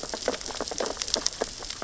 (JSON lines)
{"label": "biophony, sea urchins (Echinidae)", "recorder": "SoundTrap 600 or HydroMoth"}